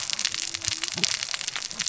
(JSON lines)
{"label": "biophony, cascading saw", "recorder": "SoundTrap 600 or HydroMoth"}